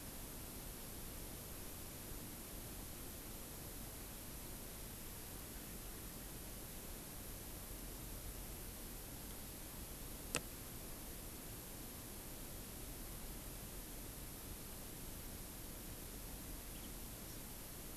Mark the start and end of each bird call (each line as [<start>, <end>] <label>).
[16.66, 17.46] House Finch (Haemorhous mexicanus)